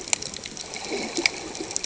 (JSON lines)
{"label": "ambient", "recorder": "HydroMoth"}